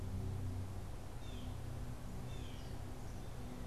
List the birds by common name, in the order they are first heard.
Blue Jay